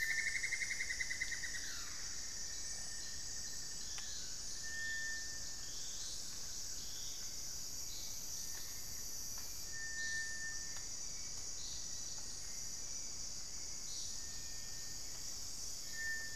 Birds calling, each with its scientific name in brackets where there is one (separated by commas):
Cinnamon-throated Woodcreeper (Dendrexetastes rufigula)